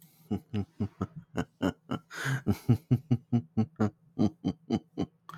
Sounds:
Laughter